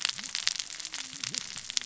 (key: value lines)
label: biophony, cascading saw
recorder: SoundTrap 600 or HydroMoth